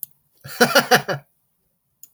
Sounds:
Laughter